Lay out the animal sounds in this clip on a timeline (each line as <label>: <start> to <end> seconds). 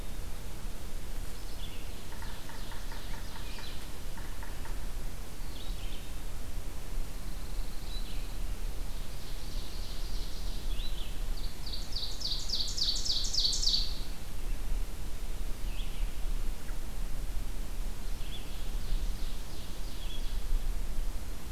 Red-eyed Vireo (Vireo olivaceus): 0.0 to 16.1 seconds
Ovenbird (Seiurus aurocapilla): 1.9 to 4.1 seconds
Yellow-bellied Sapsucker (Sphyrapicus varius): 1.9 to 4.9 seconds
Pine Warbler (Setophaga pinus): 7.0 to 8.6 seconds
Ovenbird (Seiurus aurocapilla): 9.1 to 10.7 seconds
Ovenbird (Seiurus aurocapilla): 11.2 to 14.1 seconds
Ovenbird (Seiurus aurocapilla): 17.9 to 20.6 seconds